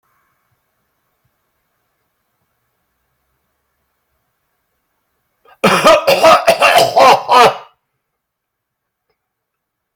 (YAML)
expert_labels:
- quality: good
  cough_type: dry
  dyspnea: false
  wheezing: false
  stridor: false
  choking: true
  congestion: false
  nothing: false
  diagnosis: lower respiratory tract infection
  severity: severe
age: 59
gender: male
respiratory_condition: false
fever_muscle_pain: false
status: symptomatic